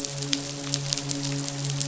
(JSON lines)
{"label": "biophony, midshipman", "recorder": "SoundTrap 500"}